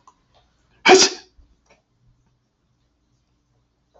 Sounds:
Sneeze